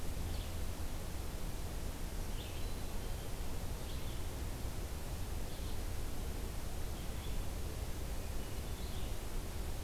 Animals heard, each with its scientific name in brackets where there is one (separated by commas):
Red-eyed Vireo (Vireo olivaceus), Hermit Thrush (Catharus guttatus)